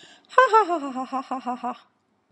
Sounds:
Laughter